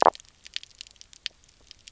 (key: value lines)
label: biophony
recorder: SoundTrap 300